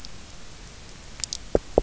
{"label": "biophony, knock", "recorder": "SoundTrap 300"}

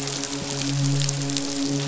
{"label": "biophony, midshipman", "recorder": "SoundTrap 500"}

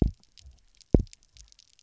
{"label": "biophony, double pulse", "recorder": "SoundTrap 300"}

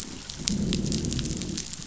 {"label": "biophony, growl", "recorder": "SoundTrap 500"}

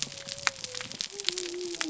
{"label": "biophony", "recorder": "SoundTrap 300"}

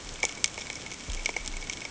{"label": "ambient", "recorder": "HydroMoth"}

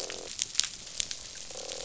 {"label": "biophony, croak", "recorder": "SoundTrap 500"}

